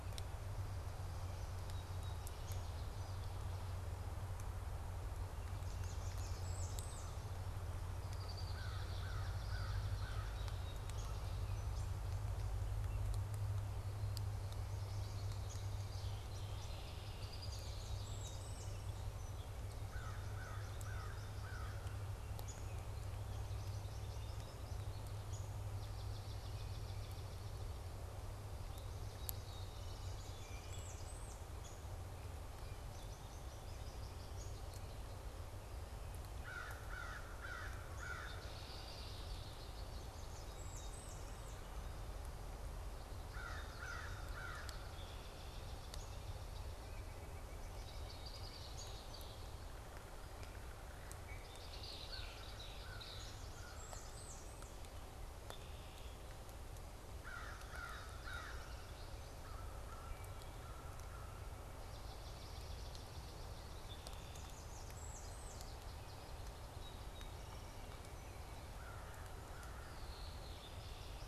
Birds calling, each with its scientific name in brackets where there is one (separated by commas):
American Crow (Corvus brachyrhynchos), American Goldfinch (Spinus tristis), White-breasted Nuthatch (Sitta carolinensis), Song Sparrow (Melospiza melodia), European Starling (Sturnus vulgaris), Blackburnian Warbler (Setophaga fusca), Swamp Sparrow (Melospiza georgiana), Wood Thrush (Hylocichla mustelina), Red-winged Blackbird (Agelaius phoeniceus), Downy Woodpecker (Dryobates pubescens)